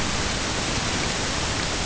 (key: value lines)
label: ambient
recorder: HydroMoth